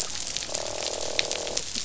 {"label": "biophony, croak", "recorder": "SoundTrap 500"}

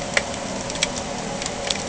{"label": "anthrophony, boat engine", "recorder": "HydroMoth"}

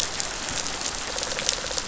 {"label": "biophony", "recorder": "SoundTrap 500"}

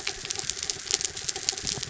{"label": "anthrophony, mechanical", "recorder": "SoundTrap 300"}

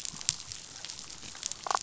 {"label": "biophony, damselfish", "recorder": "SoundTrap 500"}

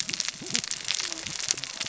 {"label": "biophony, cascading saw", "recorder": "SoundTrap 600 or HydroMoth"}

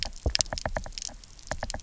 {"label": "biophony, knock", "recorder": "SoundTrap 300"}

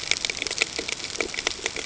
{"label": "ambient", "recorder": "HydroMoth"}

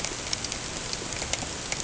{"label": "ambient", "recorder": "HydroMoth"}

